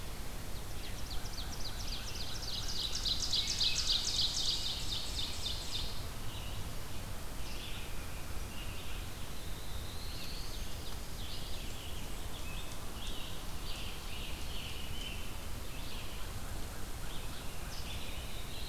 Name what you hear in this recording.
Ovenbird, Red-eyed Vireo, Black-throated Blue Warbler, Scarlet Tanager, American Crow